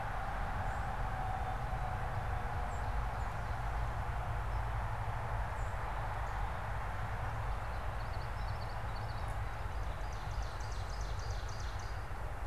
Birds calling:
Common Yellowthroat (Geothlypis trichas)
Song Sparrow (Melospiza melodia)
Ovenbird (Seiurus aurocapilla)

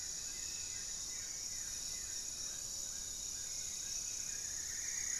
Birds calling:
unidentified bird
Gray-fronted Dove (Leptotila rufaxilla)
Goeldi's Antbird (Akletos goeldii)
Amazonian Trogon (Trogon ramonianus)
Buff-throated Woodcreeper (Xiphorhynchus guttatus)
Hauxwell's Thrush (Turdus hauxwelli)
Striped Woodcreeper (Xiphorhynchus obsoletus)

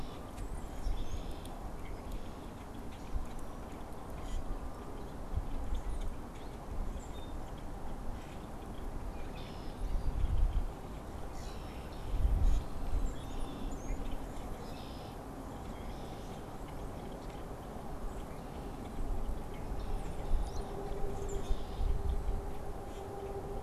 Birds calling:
Brown-headed Cowbird (Molothrus ater)
Common Grackle (Quiscalus quiscula)
Canada Goose (Branta canadensis)
Red-winged Blackbird (Agelaius phoeniceus)

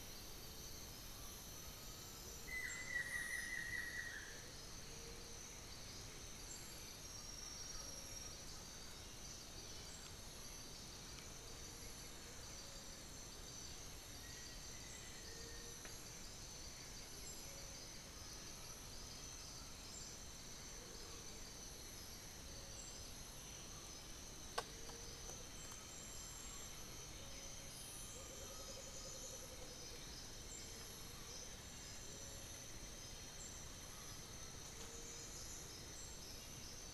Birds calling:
unidentified bird
Black-faced Antthrush (Formicarius analis)
Yellow-margined Flycatcher (Tolmomyias assimilis)
Undulated Tinamou (Crypturellus undulatus)
White-winged Becard (Pachyramphus polychopterus)
Amazonian Motmot (Momotus momota)
Buff-throated Woodcreeper (Xiphorhynchus guttatus)

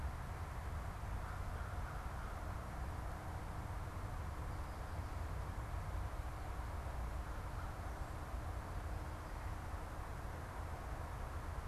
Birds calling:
American Crow (Corvus brachyrhynchos)

